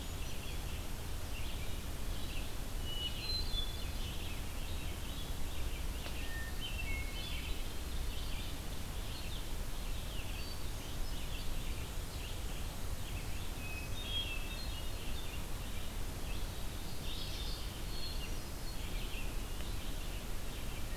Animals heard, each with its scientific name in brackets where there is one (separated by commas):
Hermit Thrush (Catharus guttatus), Red-eyed Vireo (Vireo olivaceus), Mourning Warbler (Geothlypis philadelphia)